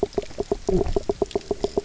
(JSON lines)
{"label": "biophony, knock croak", "recorder": "SoundTrap 300"}